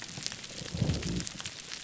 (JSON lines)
{"label": "biophony", "recorder": "SoundTrap 300"}